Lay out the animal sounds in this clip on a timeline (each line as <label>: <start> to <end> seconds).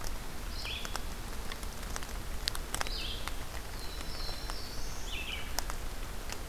Red-eyed Vireo (Vireo olivaceus): 0.0 to 6.5 seconds
Black-throated Blue Warbler (Setophaga caerulescens): 3.4 to 5.3 seconds